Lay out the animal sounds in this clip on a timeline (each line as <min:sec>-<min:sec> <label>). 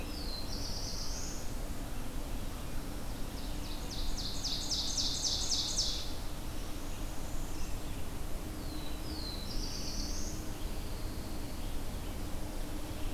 0:00.0-0:01.6 Black-throated Blue Warbler (Setophaga caerulescens)
0:00.0-0:13.1 Red-eyed Vireo (Vireo olivaceus)
0:03.1-0:06.2 Ovenbird (Seiurus aurocapilla)
0:06.7-0:07.8 Northern Parula (Setophaga americana)
0:08.4-0:10.5 Black-throated Blue Warbler (Setophaga caerulescens)
0:10.5-0:11.7 Pine Warbler (Setophaga pinus)